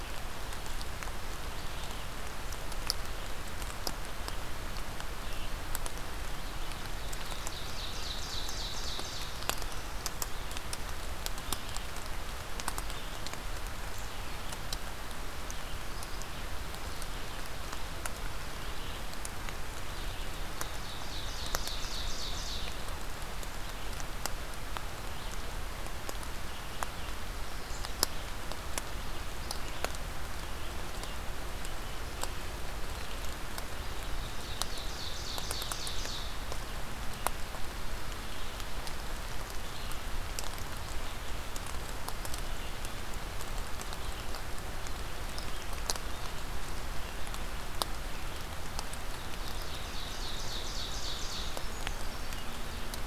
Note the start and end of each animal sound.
[0.00, 31.28] Red-eyed Vireo (Vireo olivaceus)
[6.34, 9.31] Ovenbird (Seiurus aurocapilla)
[20.26, 22.61] Ovenbird (Seiurus aurocapilla)
[33.80, 36.38] Ovenbird (Seiurus aurocapilla)
[36.89, 53.07] Red-eyed Vireo (Vireo olivaceus)
[49.36, 51.50] Ovenbird (Seiurus aurocapilla)
[51.27, 52.77] Brown Creeper (Certhia americana)

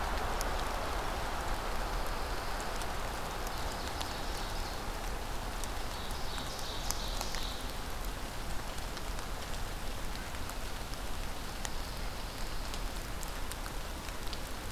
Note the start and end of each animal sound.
[1.52, 2.89] Pine Warbler (Setophaga pinus)
[3.19, 5.09] Ovenbird (Seiurus aurocapilla)
[5.77, 7.78] Ovenbird (Seiurus aurocapilla)
[11.41, 12.74] Pine Warbler (Setophaga pinus)

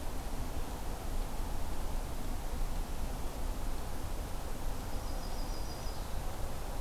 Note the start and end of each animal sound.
[4.89, 6.22] Yellow-rumped Warbler (Setophaga coronata)

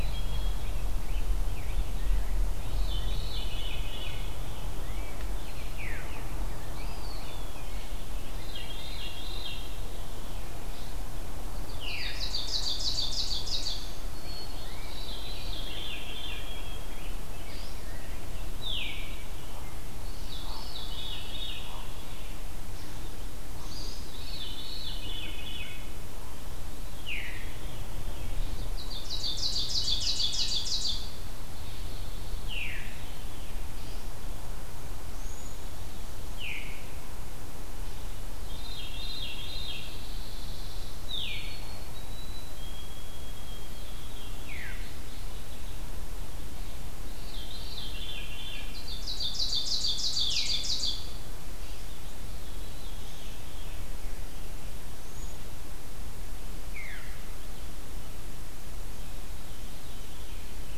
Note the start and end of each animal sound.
[0.00, 0.86] White-throated Sparrow (Zonotrichia albicollis)
[0.00, 2.44] Rose-breasted Grosbeak (Pheucticus ludovicianus)
[2.48, 5.34] Veery (Catharus fuscescens)
[5.61, 6.13] Veery (Catharus fuscescens)
[6.67, 7.71] Eastern Wood-Pewee (Contopus virens)
[8.23, 10.11] Veery (Catharus fuscescens)
[11.65, 13.99] Ovenbird (Seiurus aurocapilla)
[11.67, 12.24] Veery (Catharus fuscescens)
[14.07, 17.47] White-throated Sparrow (Zonotrichia albicollis)
[14.39, 18.41] Rose-breasted Grosbeak (Pheucticus ludovicianus)
[14.60, 16.55] Veery (Catharus fuscescens)
[18.41, 19.18] Veery (Catharus fuscescens)
[19.80, 21.80] Veery (Catharus fuscescens)
[23.60, 25.94] Veery (Catharus fuscescens)
[26.79, 28.36] Veery (Catharus fuscescens)
[28.49, 31.28] Ovenbird (Seiurus aurocapilla)
[29.68, 30.78] Veery (Catharus fuscescens)
[31.38, 32.47] Pine Warbler (Setophaga pinus)
[32.27, 32.99] Veery (Catharus fuscescens)
[34.99, 35.70] Veery (Catharus fuscescens)
[36.23, 36.82] Veery (Catharus fuscescens)
[38.41, 39.90] Veery (Catharus fuscescens)
[39.62, 40.95] Pine Warbler (Setophaga pinus)
[41.02, 41.55] Veery (Catharus fuscescens)
[41.39, 44.54] White-throated Sparrow (Zonotrichia albicollis)
[44.25, 45.88] Mourning Warbler (Geothlypis philadelphia)
[44.27, 44.92] Veery (Catharus fuscescens)
[46.94, 48.82] Veery (Catharus fuscescens)
[48.59, 51.42] Ovenbird (Seiurus aurocapilla)
[50.12, 50.69] Veery (Catharus fuscescens)
[52.19, 53.82] Veery (Catharus fuscescens)
[54.88, 55.31] Veery (Catharus fuscescens)
[56.66, 57.41] Veery (Catharus fuscescens)
[58.76, 60.66] Veery (Catharus fuscescens)

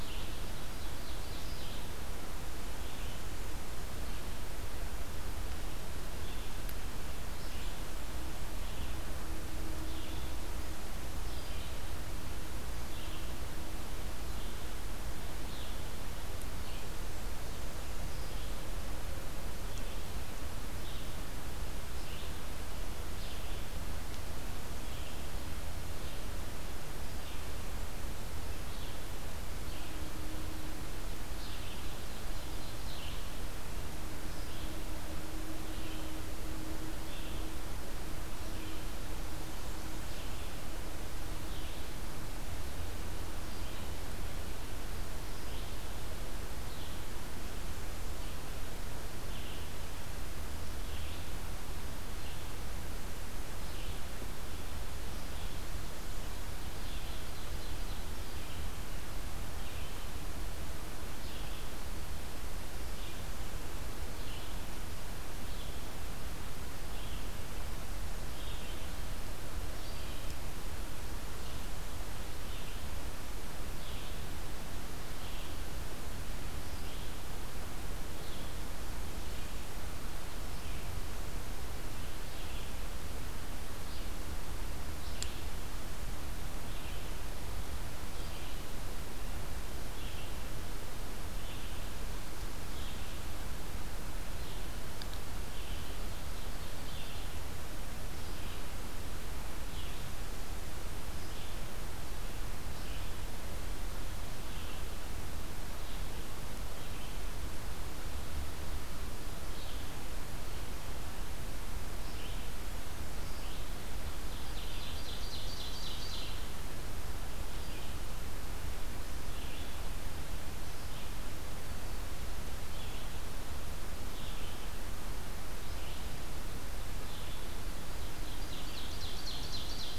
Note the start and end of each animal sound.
[0.00, 1.85] Ovenbird (Seiurus aurocapilla)
[0.00, 29.97] Red-eyed Vireo (Vireo olivaceus)
[7.15, 8.45] Blackburnian Warbler (Setophaga fusca)
[31.20, 90.45] Red-eyed Vireo (Vireo olivaceus)
[31.77, 33.10] Ovenbird (Seiurus aurocapilla)
[56.02, 58.18] Ovenbird (Seiurus aurocapilla)
[91.38, 129.98] Red-eyed Vireo (Vireo olivaceus)
[95.23, 97.07] Ovenbird (Seiurus aurocapilla)
[114.07, 116.32] Ovenbird (Seiurus aurocapilla)
[127.61, 129.98] Ovenbird (Seiurus aurocapilla)

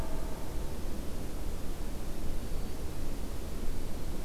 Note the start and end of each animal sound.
[1.68, 3.03] Black-throated Green Warbler (Setophaga virens)

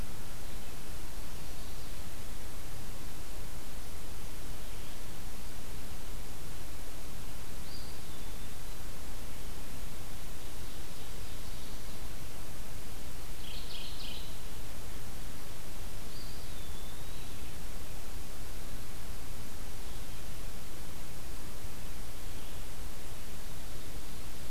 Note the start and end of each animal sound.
[7.51, 9.01] Eastern Wood-Pewee (Contopus virens)
[10.28, 12.18] Ovenbird (Seiurus aurocapilla)
[13.15, 14.57] Mourning Warbler (Geothlypis philadelphia)
[16.01, 17.68] Eastern Wood-Pewee (Contopus virens)

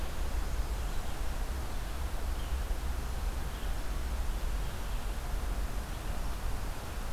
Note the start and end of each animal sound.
[0.00, 7.12] Red-eyed Vireo (Vireo olivaceus)

